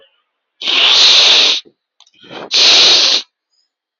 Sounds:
Sniff